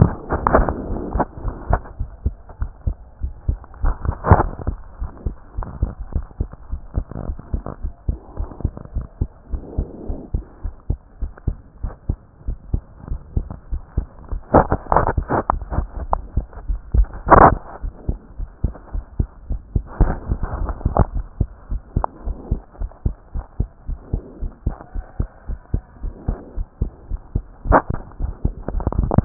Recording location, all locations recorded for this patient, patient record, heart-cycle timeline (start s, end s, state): pulmonary valve (PV)
aortic valve (AV)+pulmonary valve (PV)+tricuspid valve (TV)+mitral valve (MV)
#Age: Child
#Sex: Female
#Height: 121.0 cm
#Weight: 21.4 kg
#Pregnancy status: False
#Murmur: Absent
#Murmur locations: nan
#Most audible location: nan
#Systolic murmur timing: nan
#Systolic murmur shape: nan
#Systolic murmur grading: nan
#Systolic murmur pitch: nan
#Systolic murmur quality: nan
#Diastolic murmur timing: nan
#Diastolic murmur shape: nan
#Diastolic murmur grading: nan
#Diastolic murmur pitch: nan
#Diastolic murmur quality: nan
#Outcome: Normal
#Campaign: 2014 screening campaign
0.00	18.05	unannotated
18.05	18.08	systole
18.08	18.18	S2
18.18	18.40	diastole
18.40	18.48	S1
18.48	18.62	systole
18.62	18.74	S2
18.74	18.94	diastole
18.94	19.04	S1
19.04	19.18	systole
19.18	19.28	S2
19.28	19.50	diastole
19.50	19.60	S1
19.60	19.74	systole
19.74	19.84	S2
19.84	20.00	diastole
20.00	20.16	S1
20.16	20.28	systole
20.28	20.40	S2
20.40	20.60	diastole
20.60	20.74	S1
20.74	20.86	systole
20.86	20.94	S2
20.94	21.14	diastole
21.14	21.22	S1
21.22	21.38	systole
21.38	21.48	S2
21.48	21.70	diastole
21.70	21.80	S1
21.80	21.96	systole
21.96	22.06	S2
22.06	22.26	diastole
22.26	22.36	S1
22.36	22.50	systole
22.50	22.60	S2
22.60	22.80	diastole
22.80	22.90	S1
22.90	23.04	systole
23.04	23.14	S2
23.14	23.36	diastole
23.36	23.44	S1
23.44	23.58	systole
23.58	23.68	S2
23.68	23.88	diastole
23.88	23.98	S1
23.98	24.12	systole
24.12	24.22	S2
24.22	24.42	diastole
24.42	24.52	S1
24.52	24.66	systole
24.66	24.76	S2
24.76	24.96	diastole
24.96	25.04	S1
25.04	25.18	systole
25.18	25.28	S2
25.28	25.48	diastole
25.48	25.58	S1
25.58	25.72	systole
25.72	25.82	S2
25.82	26.02	diastole
26.02	26.14	S1
26.14	26.28	systole
26.28	26.38	S2
26.38	26.58	diastole
26.58	26.66	S1
26.66	26.80	systole
26.80	26.90	S2
26.90	27.10	diastole
27.10	27.20	S1
27.20	27.34	systole
27.34	29.25	unannotated